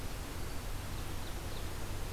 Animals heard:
Ovenbird (Seiurus aurocapilla)

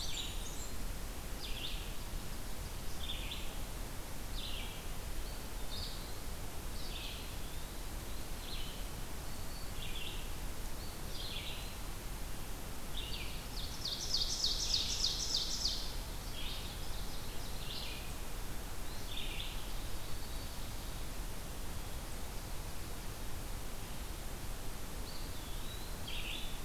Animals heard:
Blackburnian Warbler (Setophaga fusca), Black-throated Green Warbler (Setophaga virens), Ovenbird (Seiurus aurocapilla), Red-eyed Vireo (Vireo olivaceus), Eastern Wood-Pewee (Contopus virens)

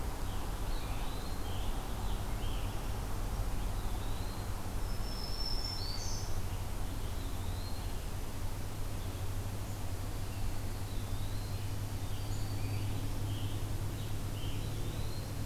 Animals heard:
Eastern Wood-Pewee (Contopus virens), Black-throated Green Warbler (Setophaga virens), Scarlet Tanager (Piranga olivacea)

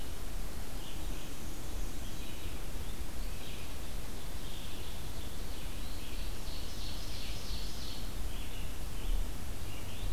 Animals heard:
Ovenbird (Seiurus aurocapilla), Red-eyed Vireo (Vireo olivaceus), Black-and-white Warbler (Mniotilta varia)

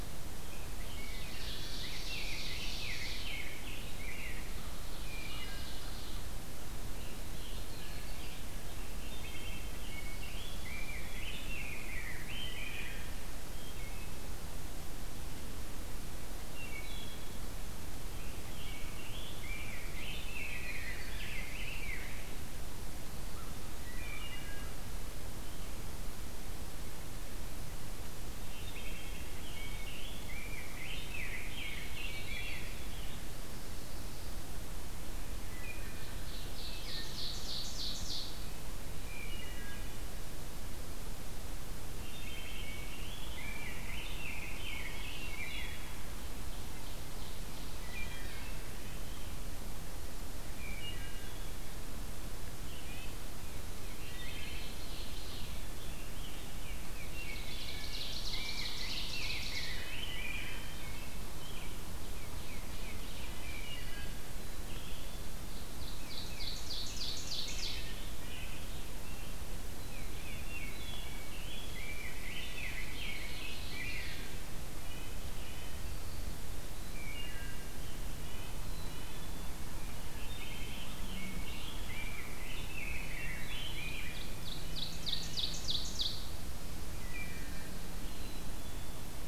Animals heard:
Tufted Titmouse (Baeolophus bicolor), Wood Thrush (Hylocichla mustelina), Red-breasted Nuthatch (Sitta canadensis), Ovenbird (Seiurus aurocapilla), Rose-breasted Grosbeak (Pheucticus ludovicianus), Yellow-rumped Warbler (Setophaga coronata), Black-capped Chickadee (Poecile atricapillus)

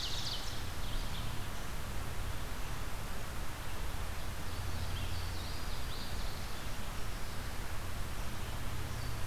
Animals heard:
Louisiana Waterthrush (Parkesia motacilla), Red-eyed Vireo (Vireo olivaceus), Ovenbird (Seiurus aurocapilla)

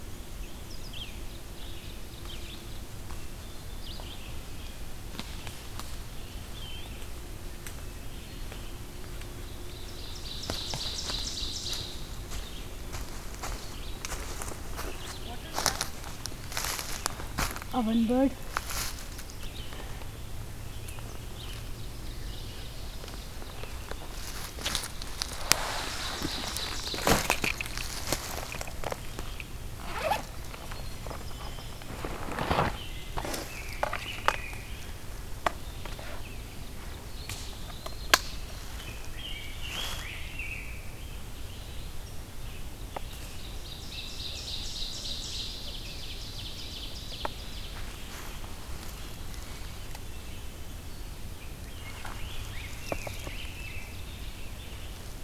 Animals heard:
Eastern Wood-Pewee (Contopus virens), Ovenbird (Seiurus aurocapilla), Rose-breasted Grosbeak (Pheucticus ludovicianus), Winter Wren (Troglodytes hiemalis), Red-eyed Vireo (Vireo olivaceus)

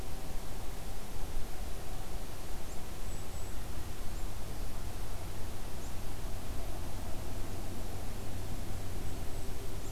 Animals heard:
Golden-crowned Kinglet (Regulus satrapa)

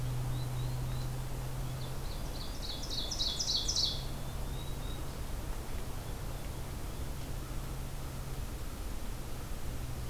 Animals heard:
unidentified call, American Crow (Corvus brachyrhynchos), Ovenbird (Seiurus aurocapilla)

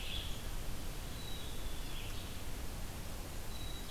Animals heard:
Black-capped Chickadee (Poecile atricapillus), Red-eyed Vireo (Vireo olivaceus)

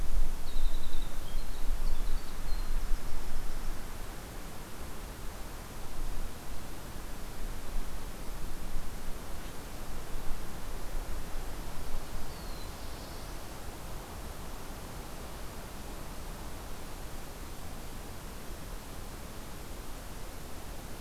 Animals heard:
Black-throated Blue Warbler (Setophaga caerulescens), Winter Wren (Troglodytes hiemalis)

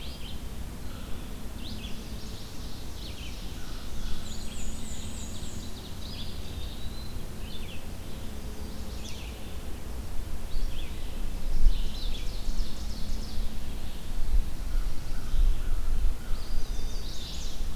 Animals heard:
Ovenbird (Seiurus aurocapilla), Red-eyed Vireo (Vireo olivaceus), Black-and-white Warbler (Mniotilta varia), American Crow (Corvus brachyrhynchos), Chestnut-sided Warbler (Setophaga pensylvanica), Eastern Wood-Pewee (Contopus virens)

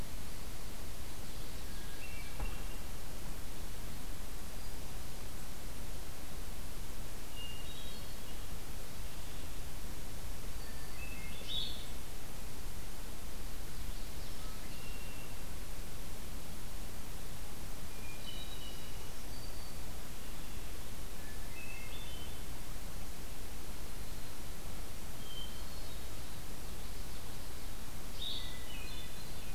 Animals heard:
Ovenbird (Seiurus aurocapilla), Red-winged Blackbird (Agelaius phoeniceus), Common Yellowthroat (Geothlypis trichas), Hermit Thrush (Catharus guttatus), Blue-headed Vireo (Vireo solitarius), Black-throated Green Warbler (Setophaga virens)

